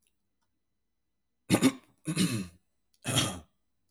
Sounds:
Throat clearing